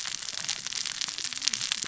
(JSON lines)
{"label": "biophony, cascading saw", "recorder": "SoundTrap 600 or HydroMoth"}